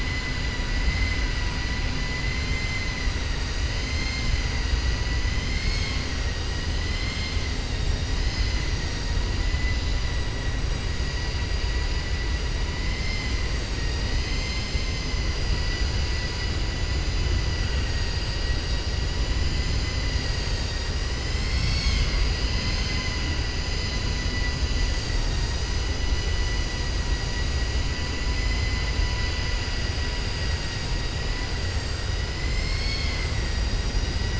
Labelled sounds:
0.8	1.2	vessel noise, 1.6 to 4.1 kHz
17.5	18.1	vessel noise, 0.97 to 2.9 kHz
28.2	29.0	vessel noise, 1.0 to 5.1 kHz

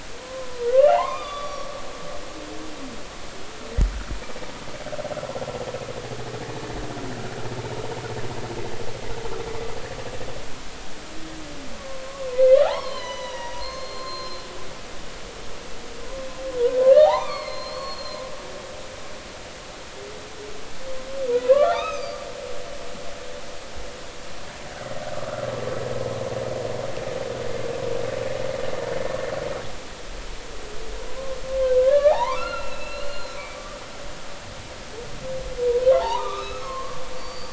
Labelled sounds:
0.2	1.7	humpback whale, 0.80 to 5.8 kHz
11.7	14.5	humpback whale, 0.80 to 6.0 kHz
16.9	18.2	humpback whale, 0.80 to 4.4 kHz
21.3	22.2	humpback whale, 0.93 to 6.5 kHz
31.7	33.6	humpback whale, 0.80 to 4.4 kHz
35.9	37.5	humpback whale, 0.80 to 4.8 kHz

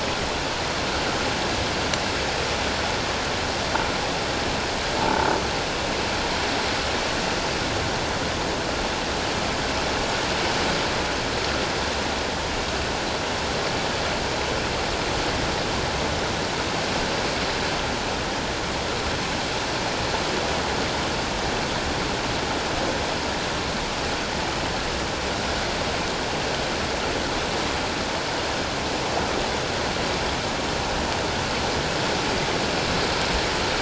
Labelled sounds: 5.0	5.3	croaking sound likely from a nearby submerged object, 0.84 to 0.97 kHz

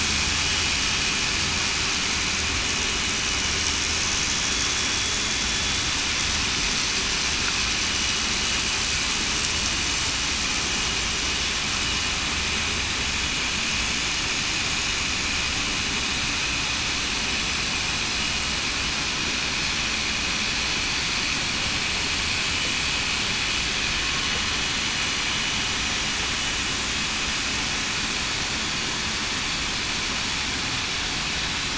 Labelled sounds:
4.4	5.2	vessel noise, 3.35 to 3.42 kHz

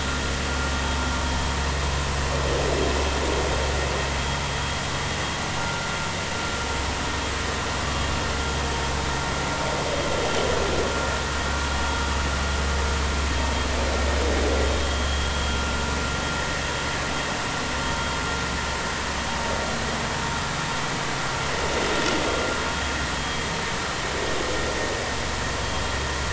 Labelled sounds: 5.6	5.9	vessel noise, 1.3 to 1.4 kHz
14.8	15.1	vessel noise, 3.2 to 3.4 kHz

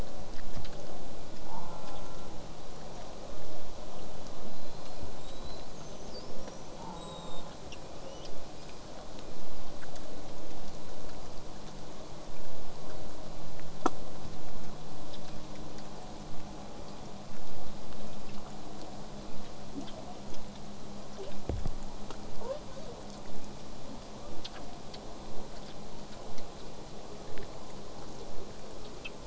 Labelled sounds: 1.5	2.3	killer whale, southern resident, J pod, call S04, 0.42 to 1.5 kHz
4.5	7.5	killer whale, southern resident, J pod, 3.5 to 8.0 kHz
6.8	7.5	killer whale, southern resident, J pod, call S04, 0.30 to 1.4 kHz
7.9	8.3	killer whale, southern resident, J pod, 2.2 to 6.4 kHz
8.5	8.8	killer whale, southern resident, J pod, 2.2 to 5.3 kHz
15.3	20.3	vessel noise, 0.08 to 8.0 kHz

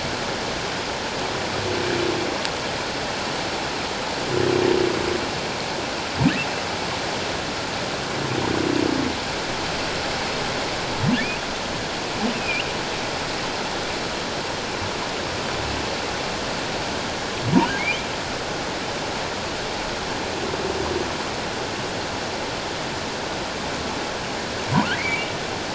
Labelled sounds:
12.3	12.7	humpback whale, 2.3 to 3.1 kHz
17.8	18.1	humpback whale, 2.1 to 2.5 kHz
24.9	25.3	humpback whale, 1.9 to 2.5 kHz

